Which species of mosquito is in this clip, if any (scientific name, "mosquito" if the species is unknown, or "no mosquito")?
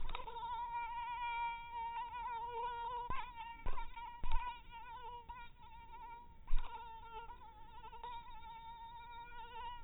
mosquito